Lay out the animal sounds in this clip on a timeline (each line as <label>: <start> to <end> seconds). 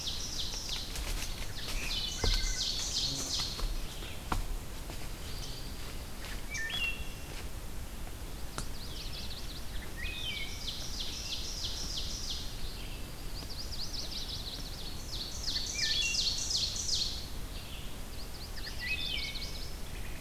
Ovenbird (Seiurus aurocapilla): 0.0 to 0.8 seconds
Red-eyed Vireo (Vireo olivaceus): 0.0 to 20.2 seconds
Ovenbird (Seiurus aurocapilla): 1.5 to 3.8 seconds
Wood Thrush (Hylocichla mustelina): 1.9 to 2.9 seconds
Wood Thrush (Hylocichla mustelina): 6.1 to 7.2 seconds
Chestnut-sided Warbler (Setophaga pensylvanica): 8.1 to 9.8 seconds
Wood Thrush (Hylocichla mustelina): 9.8 to 10.9 seconds
Ovenbird (Seiurus aurocapilla): 10.0 to 12.6 seconds
Chestnut-sided Warbler (Setophaga pensylvanica): 13.0 to 15.0 seconds
Ovenbird (Seiurus aurocapilla): 14.7 to 17.5 seconds
Wood Thrush (Hylocichla mustelina): 15.6 to 16.3 seconds
Chestnut-sided Warbler (Setophaga pensylvanica): 17.8 to 19.7 seconds
Wood Thrush (Hylocichla mustelina): 18.6 to 19.8 seconds